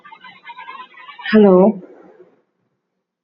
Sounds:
Throat clearing